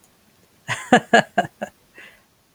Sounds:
Laughter